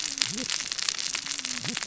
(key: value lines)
label: biophony, cascading saw
recorder: SoundTrap 600 or HydroMoth